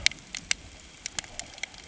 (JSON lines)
{"label": "ambient", "recorder": "HydroMoth"}